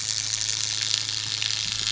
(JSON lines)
{"label": "anthrophony, boat engine", "recorder": "SoundTrap 500"}